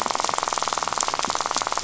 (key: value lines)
label: biophony, rattle
recorder: SoundTrap 500